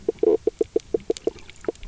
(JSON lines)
{"label": "biophony, knock croak", "recorder": "SoundTrap 300"}